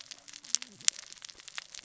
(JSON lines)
{"label": "biophony, cascading saw", "recorder": "SoundTrap 600 or HydroMoth"}